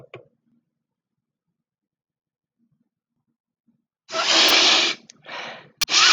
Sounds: Sniff